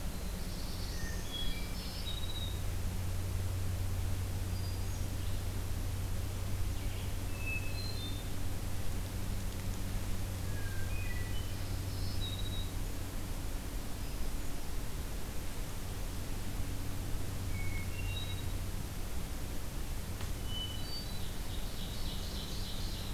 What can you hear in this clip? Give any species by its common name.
Black-throated Blue Warbler, Hermit Thrush, Black-throated Green Warbler, Ovenbird